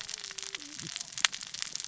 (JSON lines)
{"label": "biophony, cascading saw", "recorder": "SoundTrap 600 or HydroMoth"}